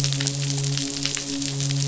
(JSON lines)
{"label": "biophony, midshipman", "recorder": "SoundTrap 500"}